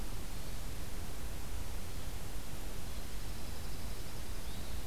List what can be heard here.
Hermit Thrush, Dark-eyed Junco